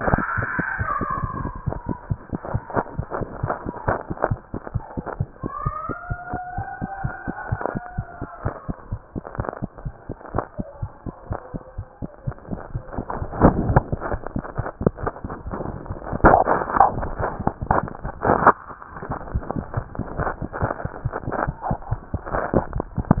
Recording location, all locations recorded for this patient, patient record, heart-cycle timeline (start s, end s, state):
mitral valve (MV)
aortic valve (AV)+mitral valve (MV)
#Age: Child
#Sex: Female
#Height: 68.0 cm
#Weight: 7.595 kg
#Pregnancy status: False
#Murmur: Unknown
#Murmur locations: nan
#Most audible location: nan
#Systolic murmur timing: nan
#Systolic murmur shape: nan
#Systolic murmur grading: nan
#Systolic murmur pitch: nan
#Systolic murmur quality: nan
#Diastolic murmur timing: nan
#Diastolic murmur shape: nan
#Diastolic murmur grading: nan
#Diastolic murmur pitch: nan
#Diastolic murmur quality: nan
#Outcome: Abnormal
#Campaign: 2015 screening campaign
0.00	6.42	unannotated
6.42	6.56	diastole
6.56	6.66	S1
6.66	6.80	systole
6.80	6.87	S2
6.87	7.02	diastole
7.02	7.12	S1
7.12	7.26	systole
7.26	7.36	S2
7.36	7.50	diastole
7.50	7.58	S1
7.58	7.74	systole
7.74	7.84	S2
7.84	7.96	diastole
7.96	8.06	S1
8.06	8.21	systole
8.21	8.27	S2
8.27	8.44	diastole
8.44	8.54	S1
8.54	8.68	systole
8.68	8.78	S2
8.78	8.90	diastole
8.90	8.98	S1
8.98	9.14	systole
9.14	9.22	S2
9.22	9.34	diastole
9.34	9.48	S1
9.48	9.61	systole
9.61	9.68	S2
9.68	9.84	diastole
9.84	9.94	S1
9.94	10.08	systole
10.08	10.18	S2
10.18	10.33	diastole
10.33	10.42	S1
10.42	10.58	systole
10.58	10.68	S2
10.68	10.80	diastole
10.80	10.90	S1
10.90	11.05	systole
11.05	11.12	S2
11.12	11.28	diastole
11.28	11.38	S1
11.38	11.52	systole
11.52	11.62	S2
11.62	11.76	diastole
11.76	11.84	S1
11.84	12.00	systole
12.00	12.10	S2
12.10	12.26	diastole
12.26	12.36	S1
12.36	12.50	systole
12.50	23.20	unannotated